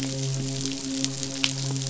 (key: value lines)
label: biophony, midshipman
recorder: SoundTrap 500